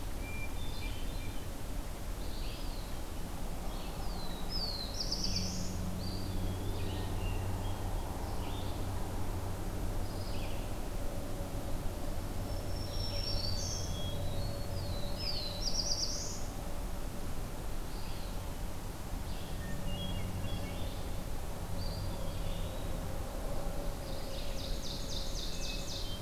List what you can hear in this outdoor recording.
Hermit Thrush, Red-eyed Vireo, Eastern Wood-Pewee, Black-throated Blue Warbler, Black-throated Green Warbler, Ovenbird